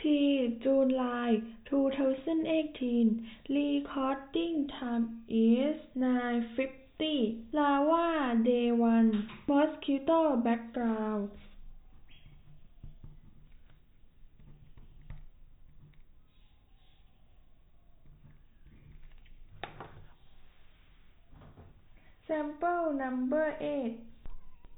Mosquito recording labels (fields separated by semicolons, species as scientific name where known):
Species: no mosquito; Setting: cup